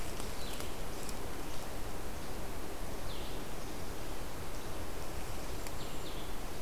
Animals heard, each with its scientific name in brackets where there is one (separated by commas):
Golden-crowned Kinglet (Regulus satrapa), Red-eyed Vireo (Vireo olivaceus)